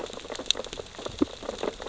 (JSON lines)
{"label": "biophony, sea urchins (Echinidae)", "recorder": "SoundTrap 600 or HydroMoth"}